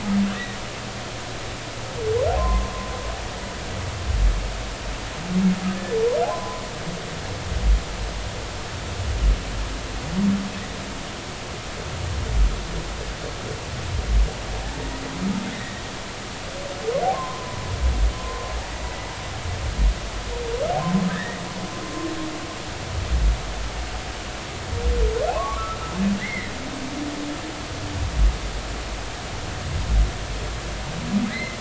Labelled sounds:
2.4	2.7	humpback whale, 0.96 to 1.1 kHz
6.3	6.6	humpback whale, 0.96 to 1.1 kHz
15.5	15.8	humpback whale, 1.8 to 2.0 kHz
17.1	18.5	humpback whale, 0.93 to 1.1 kHz
21.1	21.4	humpback whale, 1.5 to 2.0 kHz
25.4	26.5	humpback whale, 0.99 to 2.2 kHz
31.3	31.5	humpback whale, 1.9 to 2.1 kHz

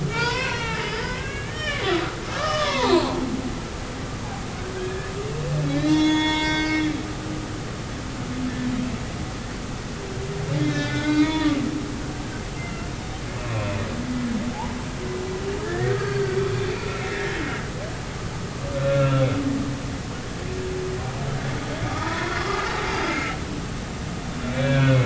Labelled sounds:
0.1	3.1	humpback whale, 0.80 to 5.4 kHz
4.8	6.8	humpback whale, 0.86 to 6.6 kHz
10.6	11.5	humpback whale, 0.90 to 5.4 kHz
12.6	13.7	humpback whale, 2.0 to 2.8 kHz
14.5	14.8	humpback whale, 0.80 to 1.0 kHz
15.6	17.4	humpback whale, 1.3 to 4.6 kHz
18.8	19.2	humpback whale, 1.3 to 1.5 kHz
21.9	23.1	humpback whale, 0.86 to 4.9 kHz
24.5	25.0	humpback whale, 1.4 to 3.5 kHz

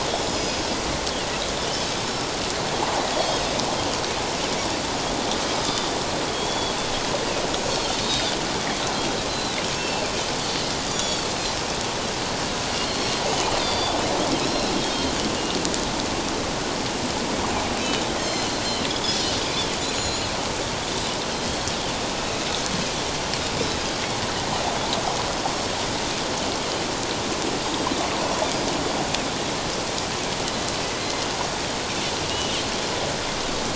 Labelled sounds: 0.3	0.7	Pacific white-sided dolphin, 4.9 to 5.2 kHz
2.0	2.3	Pacific white-sided dolphin, 5.2 to 5.5 kHz
3.1	3.5	Pacific white-sided dolphin, 3.2 to 5.2 kHz
6.3	6.8	Pacific white-sided dolphin, 3.2 to 4.6 kHz
8.0	8.4	Pacific white-sided dolphin, 3.4 to 5.1 kHz
9.3	10.0	Pacific white-sided dolphin, 2.6 to 4.2 kHz
10.9	11.6	Pacific white-sided dolphin, 3.3 to 7.2 kHz
12.8	13.2	Pacific white-sided dolphin, 4.1 to 4.5 kHz
13.6	15.1	Pacific white-sided dolphin, 3.1 to 4.8 kHz
18.2	18.5	Pacific white-sided dolphin, 2.9 to 6.5 kHz
19.8	20.3	Pacific white-sided dolphin, 4.0 to 7.2 kHz
23.6	23.9	Pacific white-sided dolphin, 5.2 to 5.3 kHz
31.0	31.3	Pacific white-sided dolphin, 2.0 to 4.2 kHz
32.2	32.6	Pacific white-sided dolphin, 2.8 to 3.0 kHz

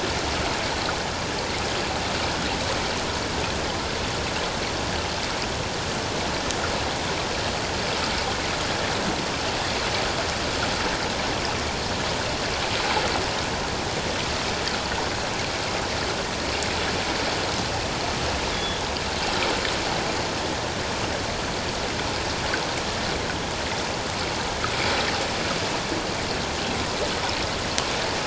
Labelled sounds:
18.5	18.8	killer whale, 3.3 to 3.7 kHz

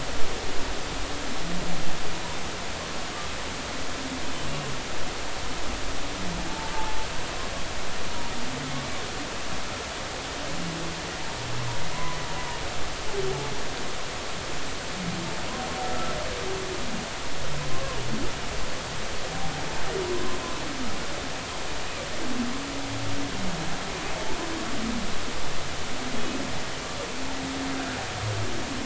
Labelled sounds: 11.9	12.2	humpback whale, 0.96 to 1.1 kHz

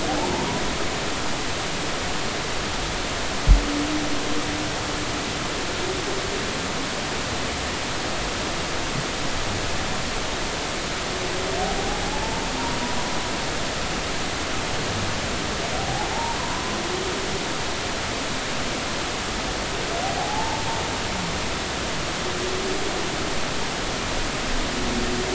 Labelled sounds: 0.1	0.4	humpback whale, 0.80 to 1.0 kHz
12.1	12.4	humpback whale, 0.80 to 0.93 kHz
15.8	16.4	humpback whale, 0.80 to 0.99 kHz
20.2	20.6	humpback whale, 0.80 to 0.96 kHz

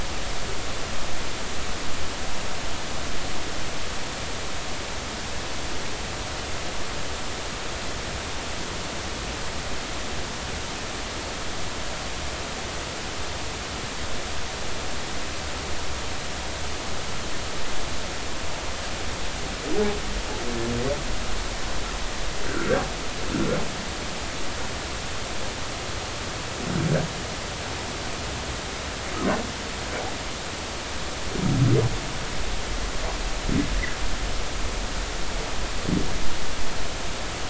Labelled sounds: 22.5	22.7	humpback whale, 1.3 to 1.6 kHz

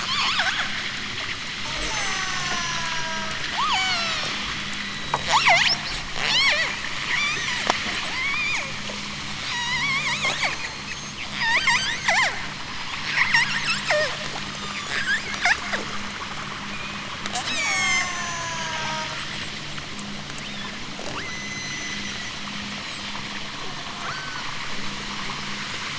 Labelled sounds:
0.0	0.8	killer whale, southern Alaska resident, 0.46 to 8.0 kHz
1.6	5.8	killer whale, southern Alaska resident, 0.41 to 8.0 kHz
6.1	7.5	killer whale, southern Alaska resident, 0.32 to 8.0 kHz
8.0	8.7	killer whale, southern Alaska resident, 0.32 to 8.0 kHz
9.3	12.4	killer whale, southern Alaska resident, 0.55 to 8.0 kHz
13.0	15.7	killer whale, southern Alaska resident, 0.50 to 8.0 kHz
16.6	19.2	killer whale, southern Alaska resident, 0.37 to 8.0 kHz
21.0	22.2	killer whale, southern Alaska resident, 0.41 to 8.0 kHz
22.6	23.3	killer whale, southern Alaska resident, 4.5 to 8.0 kHz
24.0	24.6	killer whale, southern Alaska resident, 4.2 to 8.0 kHz

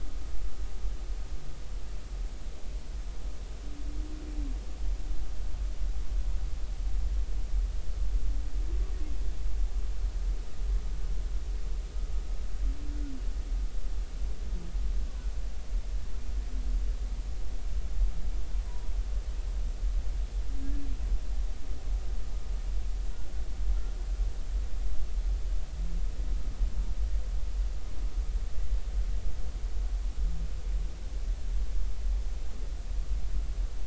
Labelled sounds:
18.7	18.9	humpback whale, 0.93 to 1.0 kHz
20.6	20.9	humpback whale, 1.6 to 1.8 kHz

